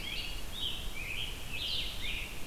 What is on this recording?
Blue-headed Vireo, Scarlet Tanager